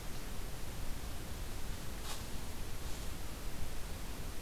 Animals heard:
forest ambience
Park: Hubbard Brook Experimental Forest